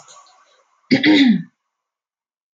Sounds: Throat clearing